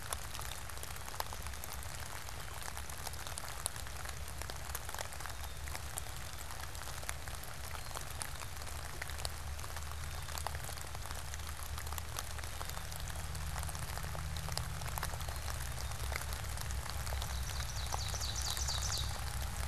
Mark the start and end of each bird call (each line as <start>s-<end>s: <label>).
16.9s-19.6s: Ovenbird (Seiurus aurocapilla)